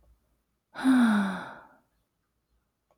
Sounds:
Sigh